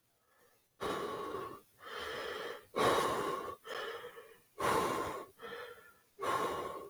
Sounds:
Sigh